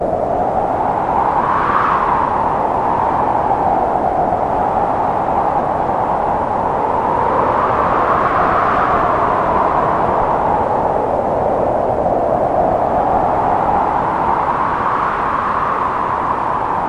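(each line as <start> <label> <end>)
0.0 Strong wind howling and hitting a hard surface. 16.9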